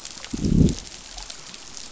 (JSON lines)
{"label": "biophony, growl", "recorder": "SoundTrap 500"}